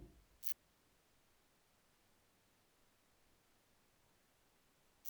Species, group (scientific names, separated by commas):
Phaneroptera falcata, Orthoptera